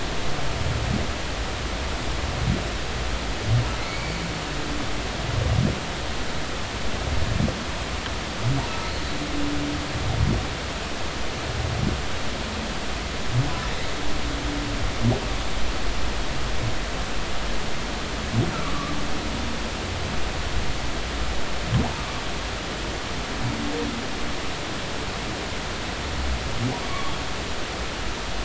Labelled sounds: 3.8	4.2	humpback whale, 2.0 to 4.6 kHz
8.7	8.9	humpback whale, 1.2 to 1.3 kHz

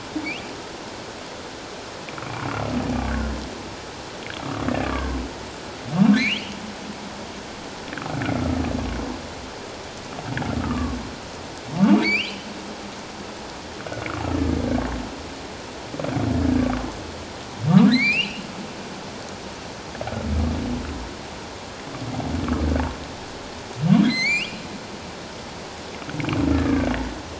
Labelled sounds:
0.2	0.5	humpback whale, 2.1 to 2.9 kHz
4.7	5.2	humpback whale, 0.94 to 1.8 kHz
6.2	6.4	humpback whale, 1.9 to 3.4 kHz
10.6	11.0	humpback whale, 1.1 to 1.3 kHz
12.0	12.5	humpback whale, 2.0 to 5.1 kHz
17.9	18.4	humpback whale, 1.3 to 4.8 kHz
24.0	24.6	humpback whale, 1.9 to 5.2 kHz
26.5	26.9	humpback whale, 1.1 to 1.8 kHz

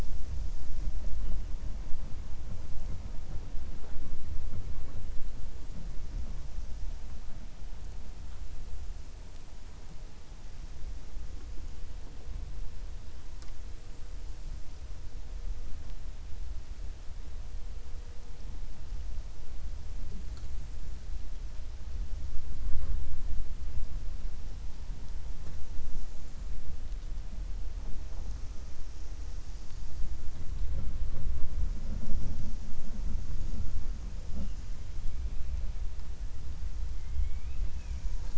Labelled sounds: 37.0	37.6	killer whale, 2.1 to 3.3 kHz

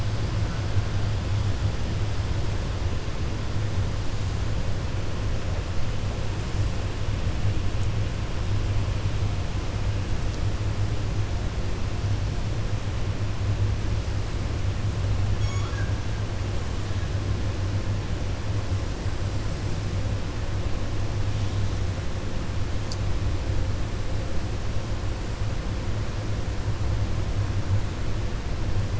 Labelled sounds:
15.3	15.9	killer whale, 1.1 to 4.4 kHz

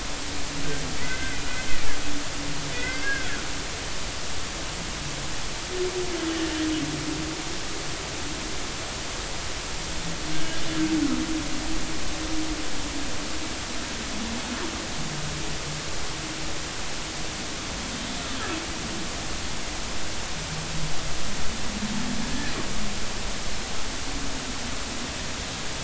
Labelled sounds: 1.0	1.4	humpback whale, 1.4 to 2.1 kHz
2.7	3.3	humpback whale, 1.4 to 2.2 kHz
10.3	10.6	humpback whale, 1.5 to 1.7 kHz
22.3	22.6	humpback whale, 1.6 to 2.0 kHz

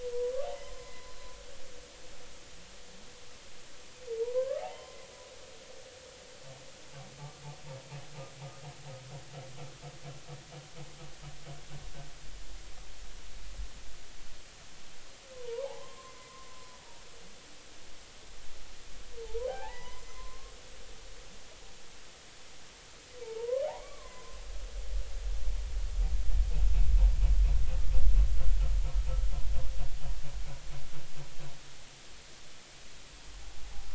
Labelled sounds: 0.6	1.1	humpback whale, 0.99 to 2.1 kHz
4.2	5.0	humpback whale, 0.80 to 1.3 kHz
15.3	16.5	humpback whale, 0.80 to 1.2 kHz
19.2	20.5	humpback whale, 0.80 to 6.1 kHz
23.2	24.4	humpback whale, 0.83 to 2.3 kHz
33.6	33.9	humpback whale, 0.80 to 0.90 kHz

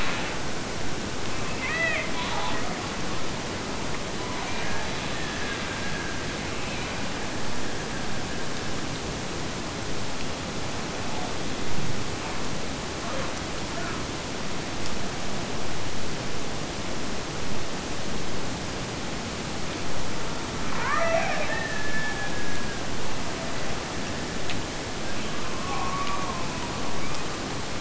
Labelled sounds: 1.5	2.7	killer whale, Bigg's (transient), Gulf of Alaska transient, 0.49 to 2.7 kHz
4.4	6.5	killer whale, Bigg's (transient), Gulf of Alaska transient, 1.3 to 2.4 kHz
20.8	22.9	killer whale, Bigg's (transient), Gulf of Alaska transient, 0.53 to 2.8 kHz

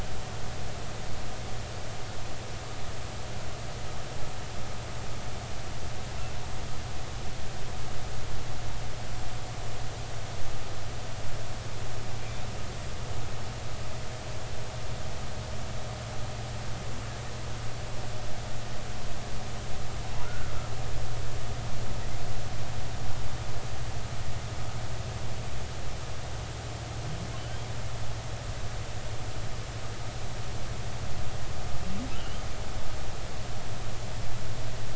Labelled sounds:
20.2	20.5	humpback whale, 1.2 to 1.5 kHz

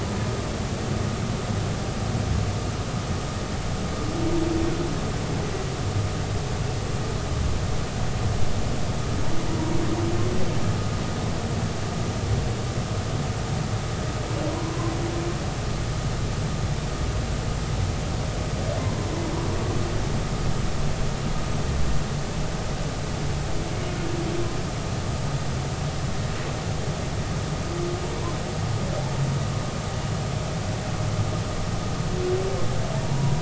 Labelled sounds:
14.5	14.7	humpback whale, 0.93 to 1.1 kHz
18.8	19.1	humpback whale, 0.93 to 1.1 kHz
33.0	33.4	humpback whale, 0.90 to 1.1 kHz

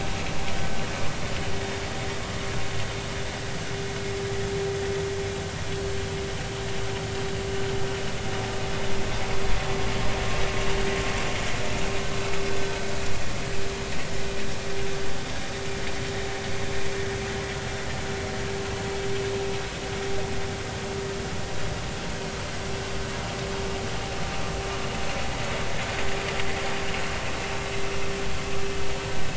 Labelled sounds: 27.5	27.7	vessel noise, 3.8 to 4.0 kHz

